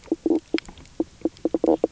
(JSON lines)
{"label": "biophony, knock croak", "recorder": "SoundTrap 300"}